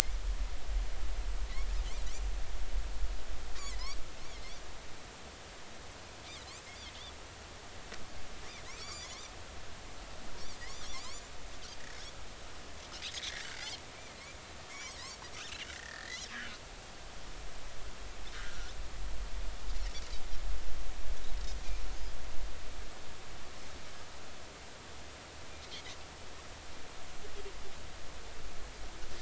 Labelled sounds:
3.6	4.0	Pacific white-sided dolphin, 1.9 to 2.4 kHz
8.8	9.2	Pacific white-sided dolphin, 1.9 to 5.1 kHz
10.9	11.2	Pacific white-sided dolphin, 4.1 to 6.0 kHz
13.1	13.8	Pacific white-sided dolphin, 1.4 to 5.4 kHz
14.7	16.6	Pacific white-sided dolphin, 1.4 to 3.2 kHz
18.3	18.7	Pacific white-sided dolphin, 1.3 to 1.7 kHz

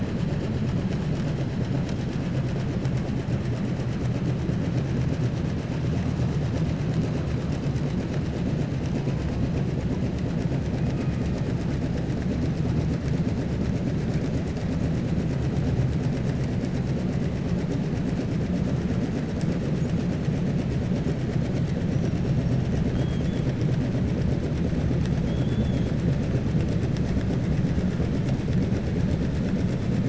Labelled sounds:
25.2	25.9	killer whale, southern resident, 2.3 to 4.0 kHz

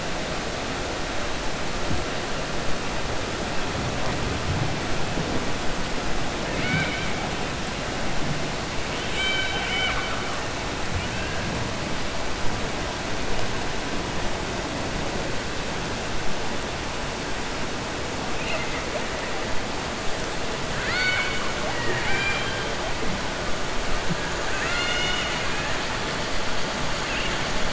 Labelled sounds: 8.9	10.4	killer whale, 0.78 to 4.6 kHz
20.7	22.6	killer whale, 0.34 to 6.7 kHz
24.5	25.7	killer whale, 1.4 to 7.2 kHz

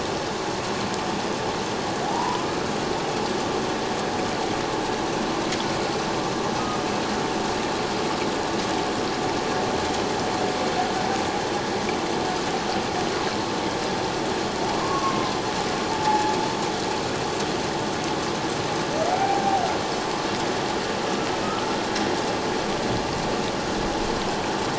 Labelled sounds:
2.0	2.4	humpback whale, 0.78 to 1.1 kHz
6.6	6.9	humpback whale, 1.2 to 1.3 kHz
14.8	15.4	humpback whale, 0.97 to 1.2 kHz
15.9	16.4	humpback whale, 0.81 to 0.94 kHz
19.1	19.6	humpback whale, 0.78 to 0.84 kHz

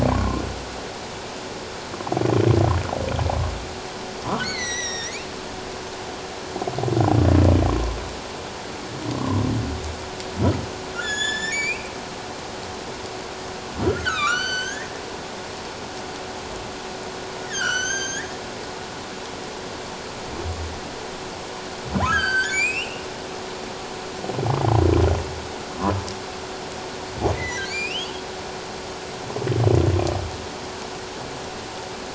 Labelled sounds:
0.1	0.4	humpback whale, 0.94 to 1.2 kHz
4.3	5.2	humpback whale, 1.1 to 8.0 kHz
9.1	9.4	humpback whale, 0.94 to 1.2 kHz
10.9	11.9	humpback whale, 1.6 to 7.2 kHz
13.8	14.9	humpback whale, 1.1 to 8.0 kHz
17.5	18.3	humpback whale, 1.3 to 6.9 kHz
22.0	23.1	humpback whale, 0.97 to 7.9 kHz
27.3	28.1	humpback whale, 1.5 to 5.2 kHz

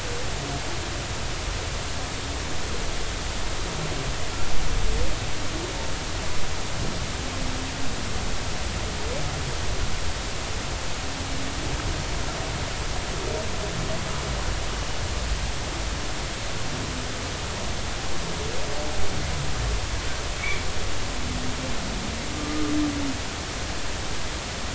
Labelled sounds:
22.4	22.7	humpback whale, 1.15 to 1.25 kHz

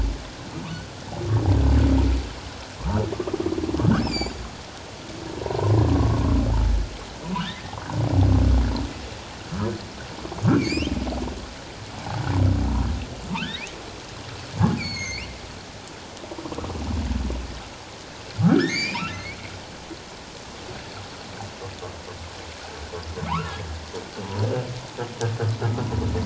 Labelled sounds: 3.9	4.4	humpback whale, 2.2 to 7.5 kHz
5.4	6.2	humpback whale, 0.84 to 1.2 kHz
7.5	7.8	humpback whale, 1.7 to 2.1 kHz
10.6	10.9	humpback whale, 2.1 to 5.6 kHz
13.3	13.8	humpback whale, 0.84 to 2.8 kHz
14.8	15.3	humpback whale, 1.9 to 6.7 kHz
18.4	19.4	humpback whale, 0.84 to 5.7 kHz
23.3	23.6	humpback whale, 0.78 to 1.5 kHz

